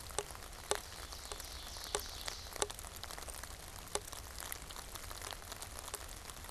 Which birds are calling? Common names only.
Ovenbird